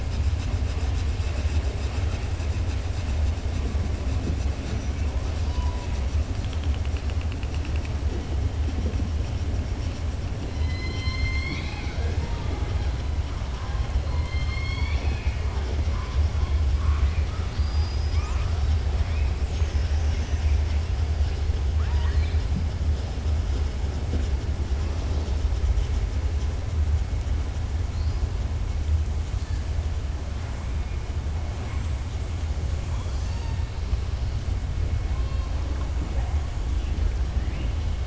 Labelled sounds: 14.1	15.4	killer whale, southern resident, 0.78 to 5.4 kHz
17.4	18.4	killer whale, southern resident, 4.2 to 7.4 kHz
21.7	22.4	killer whale, southern resident, 0.94 to 5.0 kHz

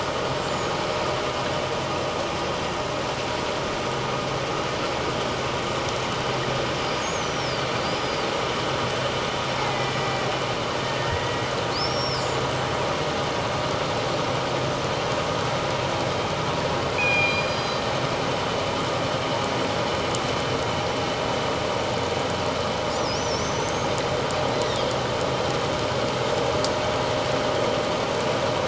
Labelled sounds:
0.4	0.7	killer whale, northern resident, 6.4 to 7.8 kHz
6.8	8.3	killer whale, northern resident, 4.3 to 6.8 kHz
9.6	9.9	killer whale, northern resident, 1.9 to 2.3 kHz
11.0	12.2	killer whale, northern resident, 1.7 to 5.7 kHz
17.0	17.8	killer whale, northern resident, 2.2 to 5.0 kHz
23.1	24.0	killer whale, northern resident, 5.2 to 6.5 kHz

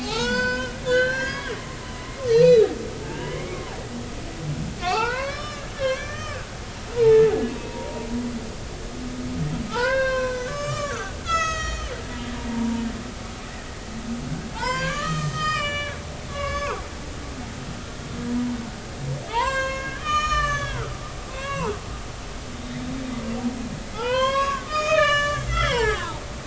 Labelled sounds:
0.0	1.5	humpback whale, 0.80 to 6.0 kHz
2.3	2.7	humpback whale, 2.3 to 6.1 kHz
3.0	3.8	humpback whale, 0.80 to 3.2 kHz
4.8	7.2	humpback whale, 0.80 to 5.4 kHz
7.6	8.1	humpback whale, 0.90 to 0.99 kHz
9.7	12.0	humpback whale, 0.83 to 7.4 kHz
12.3	12.8	humpback whale, 0.86 to 1.0 kHz
14.5	16.8	humpback whale, 0.83 to 6.4 kHz
19.2	21.8	humpback whale, 0.80 to 7.6 kHz
22.5	22.8	humpback whale, 3.6 to 3.8 kHz
23.9	26.3	humpback whale, 0.80 to 7.6 kHz

